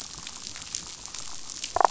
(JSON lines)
{"label": "biophony, damselfish", "recorder": "SoundTrap 500"}